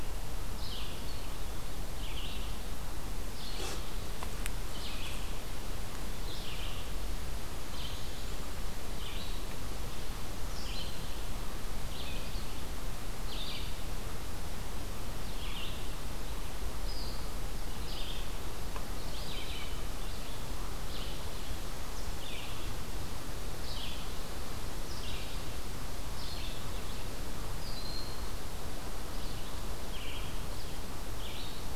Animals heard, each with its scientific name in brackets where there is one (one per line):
Broad-winged Hawk (Buteo platypterus)
Red-eyed Vireo (Vireo olivaceus)